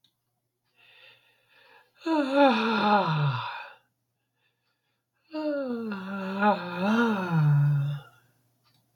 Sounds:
Sigh